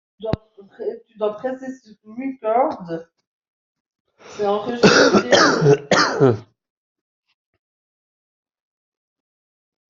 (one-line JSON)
{"expert_labels": [{"quality": "ok", "cough_type": "dry", "dyspnea": false, "wheezing": false, "stridor": false, "choking": false, "congestion": false, "nothing": true, "diagnosis": "COVID-19", "severity": "mild"}], "age": 42, "gender": "male", "respiratory_condition": false, "fever_muscle_pain": false, "status": "COVID-19"}